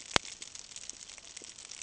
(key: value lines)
label: ambient
recorder: HydroMoth